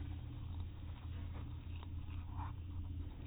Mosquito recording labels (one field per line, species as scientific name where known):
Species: no mosquito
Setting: cup